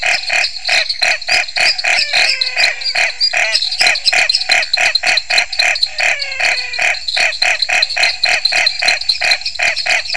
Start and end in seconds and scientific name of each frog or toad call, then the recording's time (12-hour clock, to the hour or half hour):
0.0	10.1	Dendropsophus nanus
0.0	10.1	Scinax fuscovarius
1.6	2.5	Dendropsophus minutus
1.6	3.5	Physalaemus albonotatus
3.5	4.4	Dendropsophus minutus
5.8	7.1	Physalaemus albonotatus
7:30pm